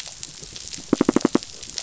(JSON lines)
{"label": "biophony, knock", "recorder": "SoundTrap 500"}